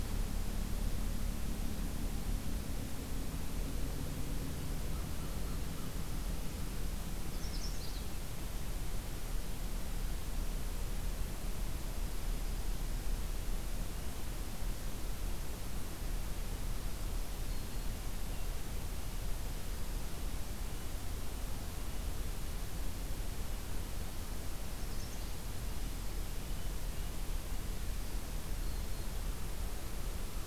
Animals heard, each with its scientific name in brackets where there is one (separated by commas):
Red-breasted Nuthatch (Sitta canadensis), American Crow (Corvus brachyrhynchos), Black-throated Green Warbler (Setophaga virens), Magnolia Warbler (Setophaga magnolia)